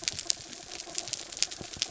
{"label": "anthrophony, mechanical", "recorder": "SoundTrap 300"}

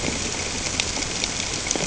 {"label": "ambient", "recorder": "HydroMoth"}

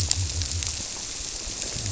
{"label": "biophony", "recorder": "SoundTrap 300"}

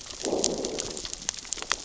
{"label": "biophony, growl", "recorder": "SoundTrap 600 or HydroMoth"}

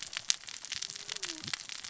{"label": "biophony, cascading saw", "recorder": "SoundTrap 600 or HydroMoth"}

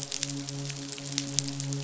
{"label": "biophony, midshipman", "recorder": "SoundTrap 500"}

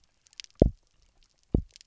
{"label": "biophony, double pulse", "recorder": "SoundTrap 300"}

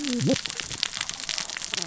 {"label": "biophony, cascading saw", "recorder": "SoundTrap 600 or HydroMoth"}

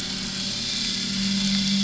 {"label": "anthrophony, boat engine", "recorder": "SoundTrap 500"}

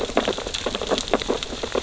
{"label": "biophony, sea urchins (Echinidae)", "recorder": "SoundTrap 600 or HydroMoth"}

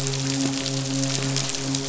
{"label": "biophony, midshipman", "recorder": "SoundTrap 500"}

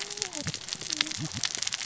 {"label": "biophony, cascading saw", "recorder": "SoundTrap 600 or HydroMoth"}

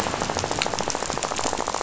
{"label": "biophony, rattle", "recorder": "SoundTrap 500"}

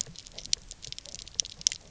{"label": "biophony, knock croak", "recorder": "SoundTrap 300"}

